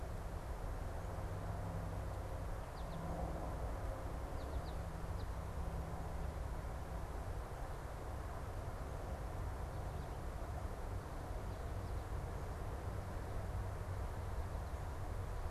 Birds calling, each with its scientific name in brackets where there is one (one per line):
American Goldfinch (Spinus tristis)